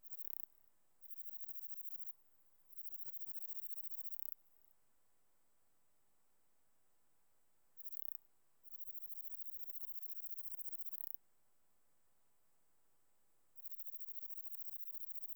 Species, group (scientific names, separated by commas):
Platycleis affinis, Orthoptera